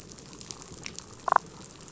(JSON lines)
{"label": "biophony, damselfish", "recorder": "SoundTrap 500"}